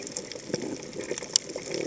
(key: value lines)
label: biophony
recorder: HydroMoth